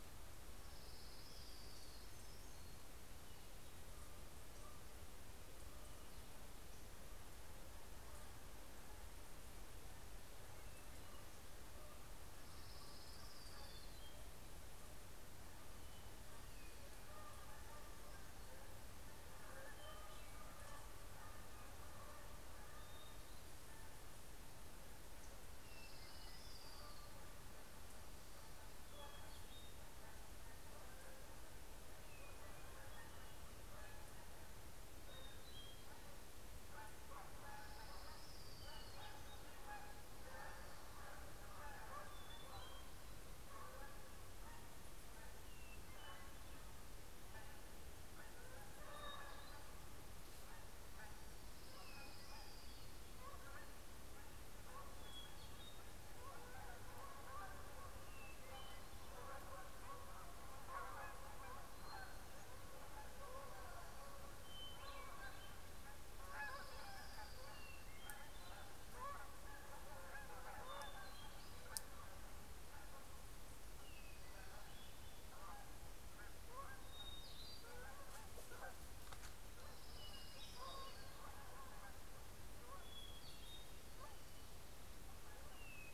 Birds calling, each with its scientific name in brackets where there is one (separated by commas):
Hermit Thrush (Catharus guttatus), Canada Goose (Branta canadensis), Orange-crowned Warbler (Leiothlypis celata), Hermit Warbler (Setophaga occidentalis)